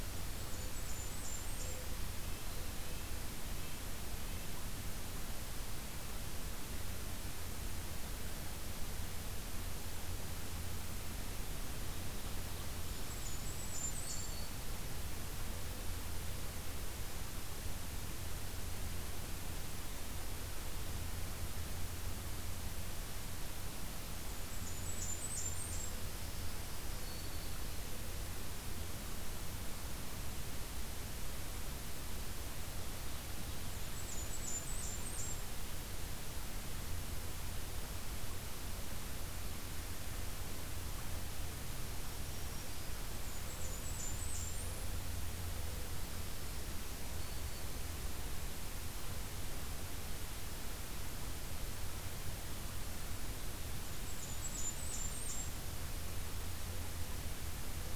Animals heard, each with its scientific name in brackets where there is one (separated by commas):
Red-breasted Nuthatch (Sitta canadensis), Blackburnian Warbler (Setophaga fusca), Mourning Dove (Zenaida macroura), Black-throated Green Warbler (Setophaga virens)